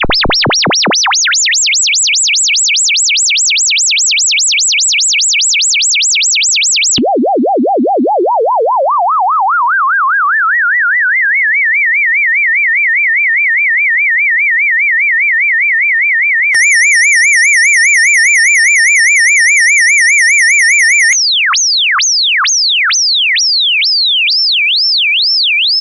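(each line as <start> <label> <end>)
0.0 A siren rises and falls repeatedly. 7.0
7.0 A siren loops steadily, shifting in pitch from low to mid range. 16.5
16.5 A high-pitched alarm beeps in short bursts. 21.2
21.2 A loud siren pulses and fades out. 25.8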